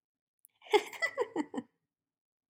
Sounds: Laughter